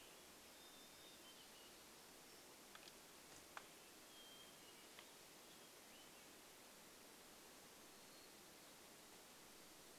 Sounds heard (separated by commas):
unidentified bird chip note, warbler song, Hermit Thrush song